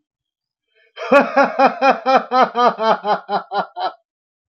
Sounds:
Laughter